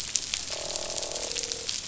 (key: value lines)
label: biophony, croak
recorder: SoundTrap 500